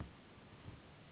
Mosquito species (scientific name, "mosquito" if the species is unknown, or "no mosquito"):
Anopheles gambiae s.s.